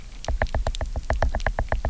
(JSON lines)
{"label": "biophony, knock", "recorder": "SoundTrap 300"}